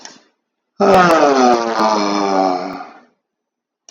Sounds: Sigh